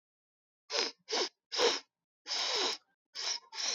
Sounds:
Sniff